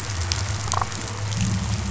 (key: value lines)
label: biophony, damselfish
recorder: SoundTrap 500

label: anthrophony, boat engine
recorder: SoundTrap 500